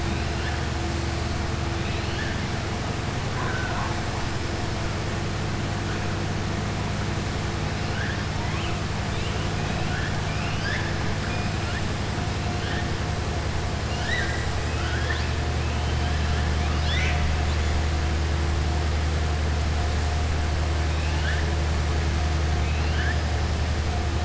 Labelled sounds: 1.7	2.4	killer whale, southern resident, 1.6 to 4.4 kHz
3.3	4.0	killer whale, southern resident, 0.51 to 2.3 kHz
9.6	10.9	killer whale, southern resident, 0.73 to 6.0 kHz
13.8	15.3	killer whale, southern resident, 1.0 to 8.0 kHz
16.5	17.3	killer whale, southern resident, 1.5 to 6.1 kHz
20.9	21.5	killer whale, southern resident, 0.88 to 4.3 kHz
22.5	23.2	killer whale, southern resident, 1.5 to 4.9 kHz

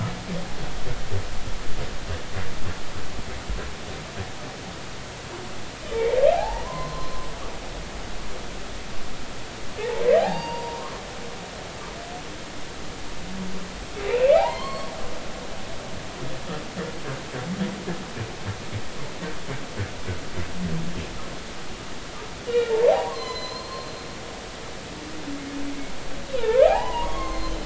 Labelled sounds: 6.3	7.3	humpback whale, 0.80 to 1.1 kHz
9.8	10.8	humpback whale, 0.80 to 6.6 kHz
14.1	14.9	humpback whale, 0.80 to 7.8 kHz
22.4	23.9	humpback whale, 0.80 to 6.4 kHz
26.4	27.6	humpback whale, 0.80 to 4.3 kHz

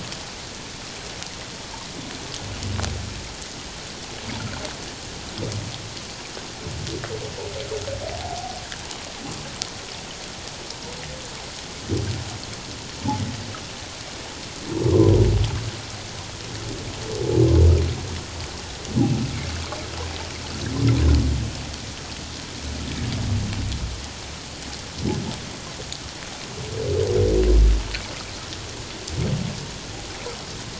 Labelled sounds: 8.2	8.6	humpback whale, 0.78 to 0.94 kHz
14.9	15.2	humpback whale, 0.94 to 1.2 kHz

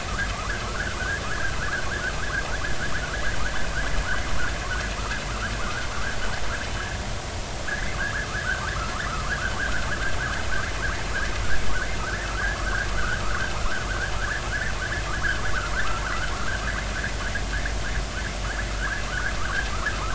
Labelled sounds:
0.7	1.0	vessel noise, 1.2 to 1.8 kHz
5.6	5.9	vessel noise, 1.0 to 1.7 kHz
7.7	8.3	vessel noise, 1.2 to 2.3 kHz
9.1	9.3	vessel noise, 1.0 to 1.4 kHz
12.3	12.6	vessel noise, 1.2 to 1.9 kHz
13.0	13.4	vessel noise, 1.2 to 1.7 kHz
16.1	16.3	vessel noise, 1.2 to 1.6 kHz
18.7	19.7	vessel noise, 1.0 to 1.8 kHz

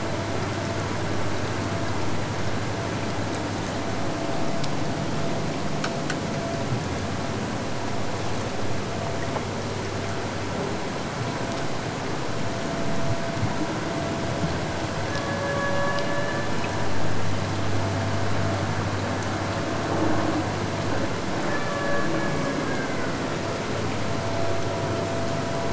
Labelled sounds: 14.9	17.1	killer whale, Bigg's (transient), AT1 transient, 0.40 to 4.1 kHz
21.3	23.3	killer whale, Bigg's (transient), AT1 transient, 0.17 to 3.0 kHz

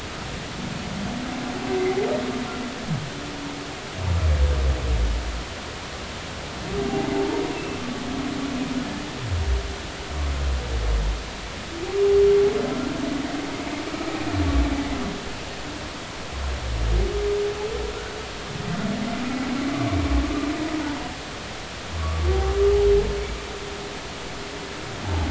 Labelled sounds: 7.5	7.8	humpback whale, 2.6 to 2.8 kHz
13.9	14.2	humpback whale, 1.2 to 1.3 kHz
22.0	22.3	humpback whale, 1.1 to 1.2 kHz

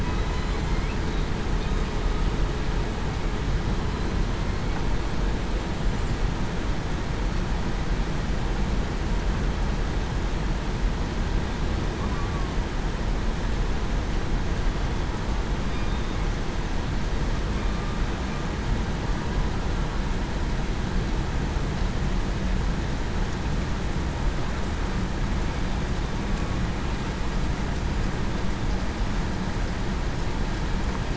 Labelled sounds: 0.3	0.7	killer whale, southern resident, 4.0 to 4.1 kHz
12.1	12.5	killer whale, southern resident, 1.1 to 1.2 kHz

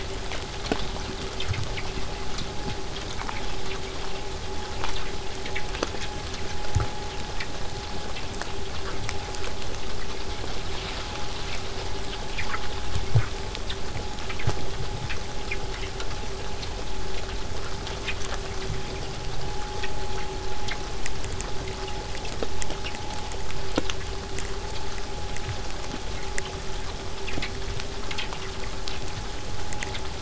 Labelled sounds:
25.7	30.2	killer whale, southern resident, 7.8 to 8.0 kHz

